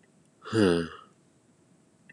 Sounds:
Sigh